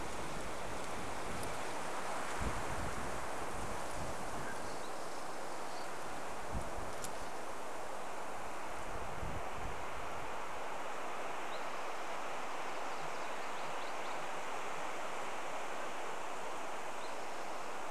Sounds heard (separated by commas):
Spotted Towhee song, Mountain Quail call, MacGillivray's Warbler song